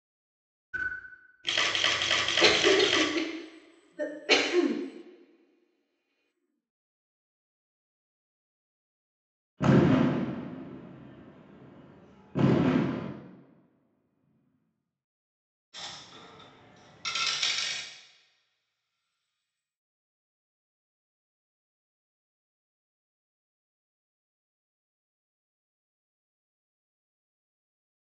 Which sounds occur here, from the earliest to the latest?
camera, cough, fireworks, coin